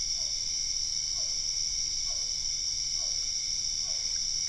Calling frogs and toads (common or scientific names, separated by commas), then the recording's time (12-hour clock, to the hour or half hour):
Physalaemus cuvieri
~8pm